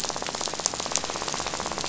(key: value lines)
label: biophony, rattle
recorder: SoundTrap 500